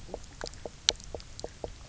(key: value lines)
label: biophony, knock croak
recorder: SoundTrap 300